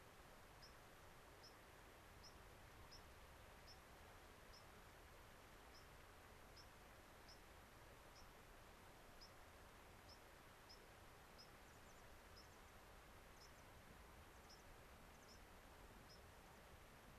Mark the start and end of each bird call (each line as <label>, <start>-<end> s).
White-crowned Sparrow (Zonotrichia leucophrys), 0.0-11.5 s
American Pipit (Anthus rubescens), 11.6-12.1 s
White-crowned Sparrow (Zonotrichia leucophrys), 12.3-12.6 s
American Pipit (Anthus rubescens), 12.4-12.8 s
White-crowned Sparrow (Zonotrichia leucophrys), 13.3-13.6 s
American Pipit (Anthus rubescens), 13.3-13.7 s
American Pipit (Anthus rubescens), 14.2-14.7 s
White-crowned Sparrow (Zonotrichia leucophrys), 14.4-14.6 s
American Pipit (Anthus rubescens), 15.1-15.4 s
White-crowned Sparrow (Zonotrichia leucophrys), 15.2-15.4 s
White-crowned Sparrow (Zonotrichia leucophrys), 16.0-16.3 s
American Pipit (Anthus rubescens), 16.3-16.7 s